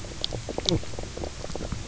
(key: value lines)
label: biophony, knock croak
recorder: SoundTrap 300